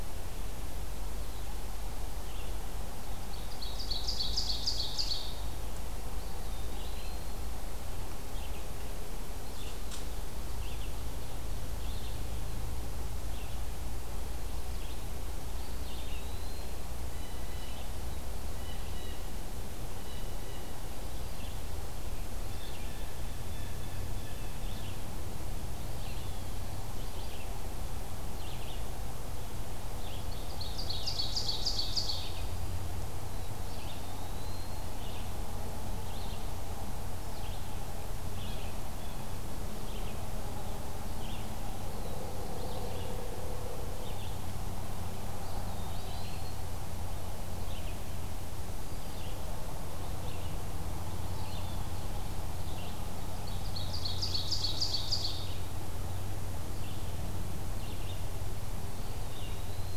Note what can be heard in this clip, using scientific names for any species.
Vireo olivaceus, Seiurus aurocapilla, Contopus virens, Cyanocitta cristata